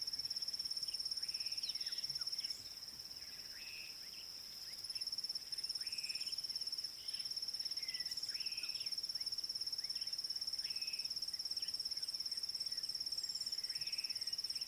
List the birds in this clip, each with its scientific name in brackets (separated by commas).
Slate-colored Boubou (Laniarius funebris)